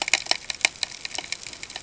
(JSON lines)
{"label": "ambient", "recorder": "HydroMoth"}